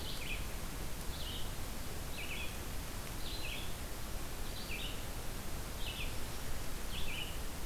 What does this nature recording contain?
Red-eyed Vireo